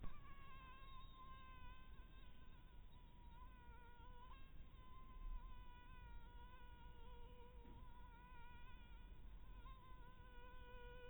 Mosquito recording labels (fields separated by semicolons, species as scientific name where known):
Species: mosquito; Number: one; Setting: cup